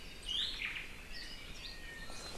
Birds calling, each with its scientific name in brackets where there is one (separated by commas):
Hawaii Akepa (Loxops coccineus), Hawaii Creeper (Loxops mana), Omao (Myadestes obscurus), Iiwi (Drepanis coccinea)